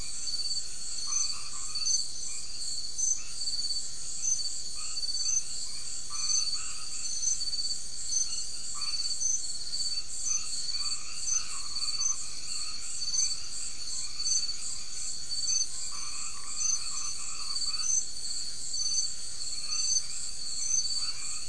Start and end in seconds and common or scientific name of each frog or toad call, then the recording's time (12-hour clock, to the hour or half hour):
0.0	2.2	white-edged tree frog
3.2	21.4	white-edged tree frog
~10pm